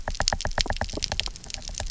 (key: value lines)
label: biophony, knock
recorder: SoundTrap 300